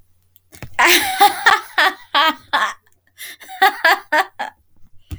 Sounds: Laughter